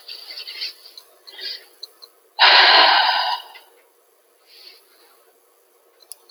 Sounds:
Sigh